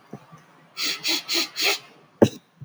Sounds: Sniff